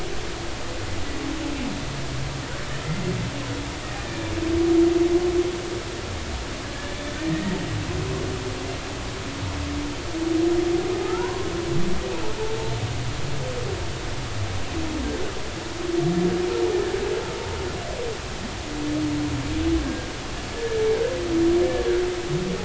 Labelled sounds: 6.9	7.6	humpback whale, 1.8 to 3.6 kHz
11.0	11.5	humpback whale, 0.86 to 1.6 kHz
19.8	20.8	humpback whale, 1.5 to 1.8 kHz

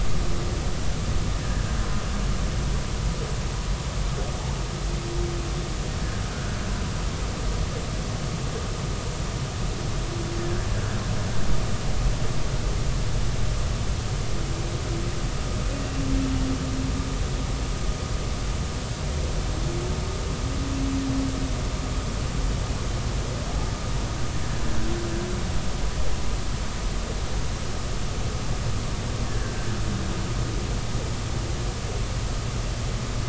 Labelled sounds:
6.3	6.6	humpback whale, 1.3 to 1.7 kHz
29.2	29.5	humpback whale, 1.5 to 1.9 kHz

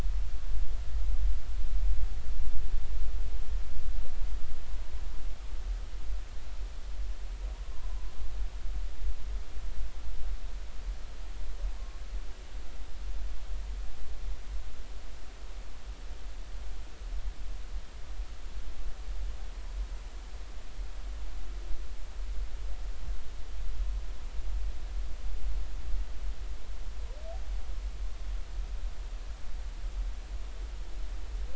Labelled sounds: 7.6	7.9	humpback whale, 0.90 to 1.1 kHz
11.8	12.0	humpback whale, 1.0 to 1.1 kHz

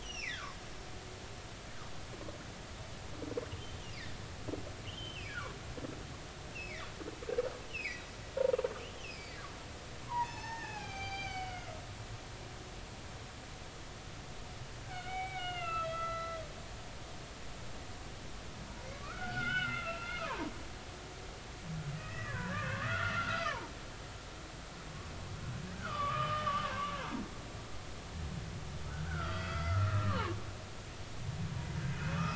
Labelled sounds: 0.0	0.6	humpback whale, 0.99 to 6.0 kHz
4.9	5.5	humpback whale, 0.99 to 3.3 kHz
7.7	8.0	humpback whale, 1.9 to 3.0 kHz
8.9	9.4	humpback whale, 2.4 to 5.4 kHz
10.0	11.8	humpback whale, 0.80 to 6.4 kHz
14.8	16.4	humpback whale, 0.80 to 4.1 kHz
18.9	20.5	humpback whale, 0.86 to 3.1 kHz
22.0	23.7	humpback whale, 0.83 to 4.9 kHz
25.7	27.0	humpback whale, 0.99 to 3.1 kHz
29.0	30.3	humpback whale, 0.83 to 4.8 kHz
31.9	32.2	humpback whale, 2.4 to 2.6 kHz

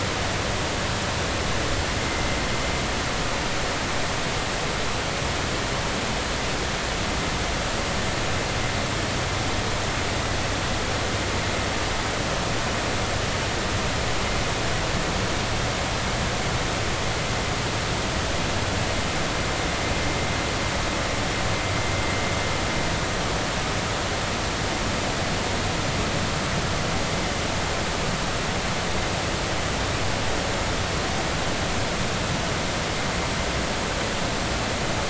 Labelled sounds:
2.0	2.3	vessel noise, 2.0 to 2.2 kHz

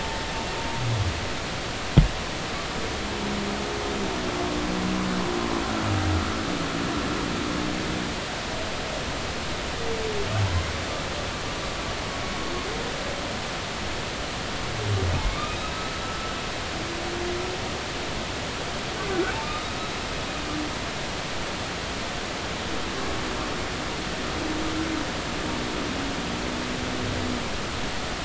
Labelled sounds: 15.2	16.3	humpback whale, 0.99 to 1.4 kHz
19.4	19.7	humpback whale, 1.2 to 1.3 kHz

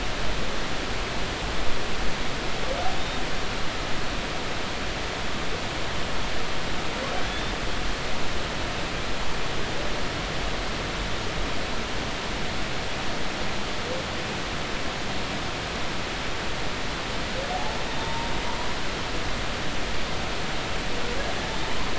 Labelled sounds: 17.5	18.3	humpback whale, 0.80 to 3.7 kHz
21.6	21.9	humpback whale, 0.86 to 1.2 kHz

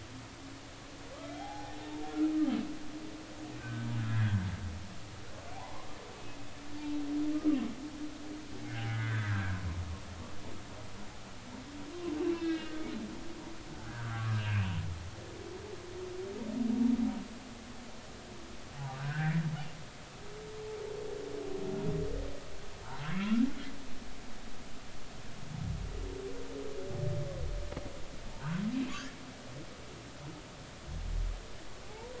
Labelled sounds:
1.2	2.5	humpback whale, 0.80 to 3.3 kHz
3.6	4.4	humpback whale, 1.5 to 2.0 kHz
5.5	5.9	humpback whale, 0.80 to 1.2 kHz
7.3	7.6	humpback whale, 1.1 to 1.3 kHz
8.7	9.6	humpback whale, 1.3 to 2.3 kHz
12.2	12.9	humpback whale, 1.5 to 4.0 kHz
13.8	14.8	humpback whale, 1.1 to 2.9 kHz
19.0	19.5	humpback whale, 1.4 to 2.4 kHz
23.2	23.5	humpback whale, 1.3 to 1.6 kHz
28.3	28.5	humpback whale, 0.86 to 1.1 kHz
31.8	32.1	humpback whale, 0.80 to 0.99 kHz

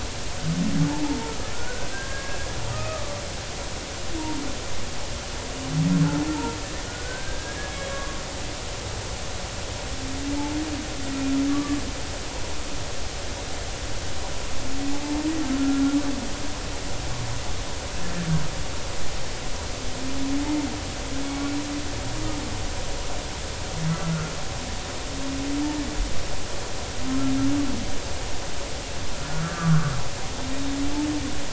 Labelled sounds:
1.0	2.4	humpback whale, 0.80 to 1.7 kHz
2.7	3.2	humpback whale, 1.1 to 1.3 kHz
6.3	8.2	humpback whale, 0.86 to 1.7 kHz
11.5	11.8	humpback whale, 1.1 to 1.2 kHz
14.9	15.2	humpback whale, 0.83 to 0.93 kHz
15.6	15.8	humpback whale, 1.3 to 1.5 kHz
21.2	21.6	humpback whale, 2.2 to 2.3 kHz
24.0	24.3	humpback whale, 1.2 to 1.5 kHz
29.4	30.0	humpback whale, 1.1 to 1.7 kHz

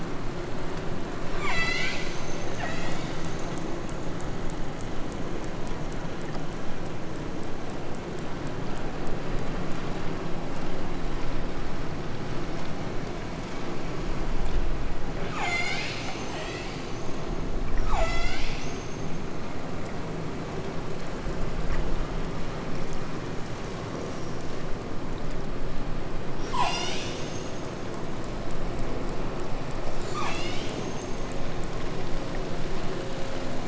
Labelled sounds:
1.3	3.7	killer whale, southern Alaska resident, 0.64 to 8.0 kHz
15.2	17.2	killer whale, southern Alaska resident, 0.37 to 8.0 kHz
17.7	19.6	killer whale, southern Alaska resident, 0.54 to 8.0 kHz
26.5	28.1	killer whale, southern Alaska resident, 0.44 to 8.0 kHz
30.0	31.5	killer whale, southern Alaska resident, 0.54 to 8.0 kHz

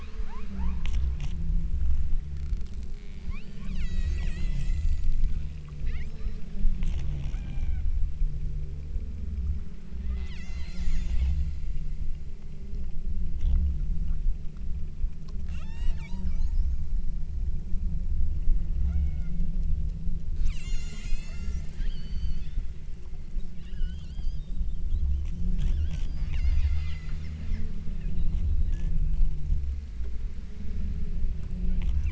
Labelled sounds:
0.0	0.9	killer whale, southern Alaska resident, 0.64 to 5.0 kHz
3.0	5.3	killer whale, southern Alaska resident, 0.73 to 8.0 kHz
5.9	6.5	killer whale, southern Alaska resident, 1.0 to 7.9 kHz
7.3	8.0	killer whale, southern Alaska resident, 0.59 to 4.0 kHz
10.0	11.6	killer whale, southern Alaska resident, 0.48 to 8.0 kHz
15.5	17.0	killer whale, southern Alaska resident, 0.66 to 8.0 kHz
18.8	19.5	killer whale, southern Alaska resident, 0.52 to 5.3 kHz
20.4	22.8	killer whale, southern Alaska resident, 0.91 to 8.0 kHz
23.6	24.6	killer whale, southern Alaska resident, 1.0 to 8.0 kHz
25.6	29.1	killer whale, southern Alaska resident, 0.84 to 8.0 kHz

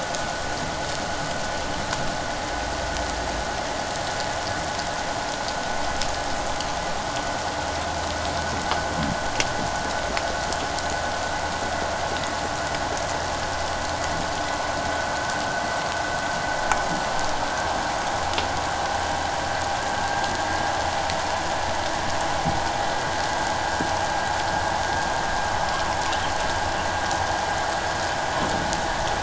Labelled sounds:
17.5	17.8	vessel noise, 1.5 to 1.6 kHz

